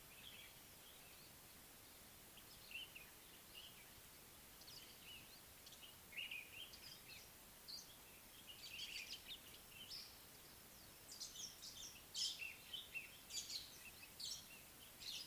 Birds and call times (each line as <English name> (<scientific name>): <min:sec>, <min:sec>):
Meyer's Parrot (Poicephalus meyeri): 0:12.2